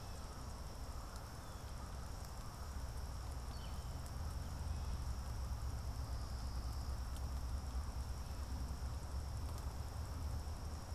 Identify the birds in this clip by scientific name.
Colaptes auratus